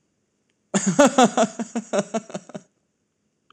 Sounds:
Laughter